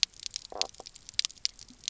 {"label": "biophony, knock croak", "recorder": "SoundTrap 300"}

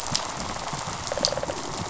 {"label": "biophony, rattle response", "recorder": "SoundTrap 500"}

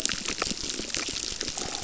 {"label": "biophony, crackle", "recorder": "SoundTrap 600"}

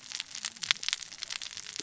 {"label": "biophony, cascading saw", "recorder": "SoundTrap 600 or HydroMoth"}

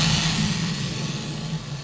{"label": "anthrophony, boat engine", "recorder": "SoundTrap 500"}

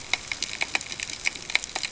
{"label": "ambient", "recorder": "HydroMoth"}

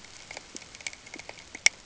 {"label": "ambient", "recorder": "HydroMoth"}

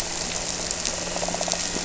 {"label": "anthrophony, boat engine", "recorder": "SoundTrap 300"}
{"label": "biophony", "recorder": "SoundTrap 300"}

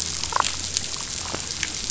{"label": "biophony, damselfish", "recorder": "SoundTrap 500"}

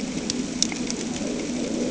{"label": "anthrophony, boat engine", "recorder": "HydroMoth"}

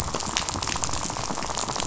{"label": "biophony, rattle", "recorder": "SoundTrap 500"}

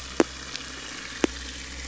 {"label": "anthrophony, boat engine", "recorder": "SoundTrap 500"}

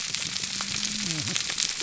{"label": "biophony, whup", "recorder": "SoundTrap 300"}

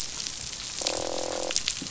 {"label": "biophony, croak", "recorder": "SoundTrap 500"}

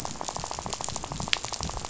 {"label": "biophony, rattle", "recorder": "SoundTrap 500"}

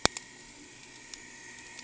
{"label": "anthrophony, boat engine", "recorder": "HydroMoth"}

